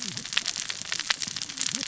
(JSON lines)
{"label": "biophony, cascading saw", "recorder": "SoundTrap 600 or HydroMoth"}